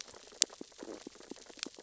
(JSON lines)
{"label": "biophony, sea urchins (Echinidae)", "recorder": "SoundTrap 600 or HydroMoth"}
{"label": "biophony, stridulation", "recorder": "SoundTrap 600 or HydroMoth"}